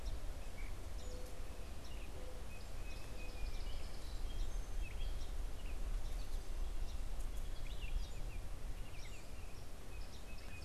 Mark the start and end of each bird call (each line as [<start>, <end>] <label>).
[0.00, 3.47] Mourning Dove (Zenaida macroura)
[0.00, 10.65] Gray Catbird (Dumetella carolinensis)
[0.00, 10.65] Song Sparrow (Melospiza melodia)